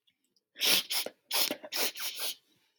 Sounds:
Sniff